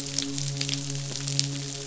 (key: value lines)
label: biophony, midshipman
recorder: SoundTrap 500